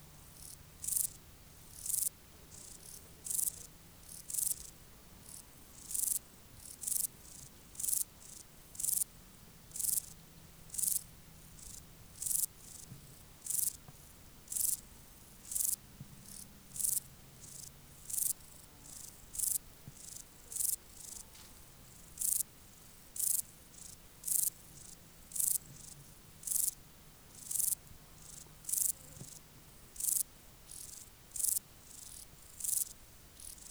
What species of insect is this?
Euchorthippus declivus